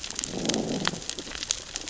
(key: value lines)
label: biophony, growl
recorder: SoundTrap 600 or HydroMoth